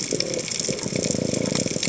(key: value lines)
label: biophony
recorder: HydroMoth